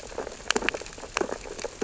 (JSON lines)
{"label": "biophony, sea urchins (Echinidae)", "recorder": "SoundTrap 600 or HydroMoth"}